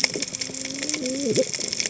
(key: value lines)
label: biophony, cascading saw
recorder: HydroMoth